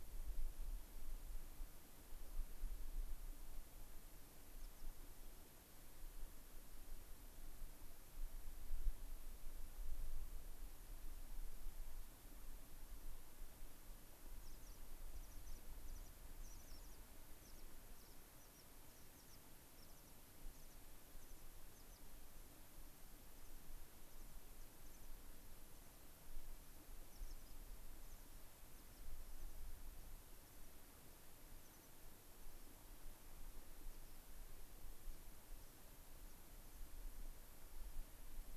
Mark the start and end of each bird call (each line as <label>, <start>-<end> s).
American Pipit (Anthus rubescens), 4.5-4.8 s
American Pipit (Anthus rubescens), 14.3-19.4 s
American Pipit (Anthus rubescens), 19.7-20.1 s
American Pipit (Anthus rubescens), 20.4-20.7 s
American Pipit (Anthus rubescens), 21.1-22.0 s
American Pipit (Anthus rubescens), 23.2-26.0 s
American Pipit (Anthus rubescens), 27.0-29.5 s
American Pipit (Anthus rubescens), 30.2-30.8 s
American Pipit (Anthus rubescens), 31.5-32.8 s
American Pipit (Anthus rubescens), 33.8-34.2 s
American Pipit (Anthus rubescens), 35.0-35.2 s
American Pipit (Anthus rubescens), 35.5-35.8 s
American Pipit (Anthus rubescens), 36.2-36.9 s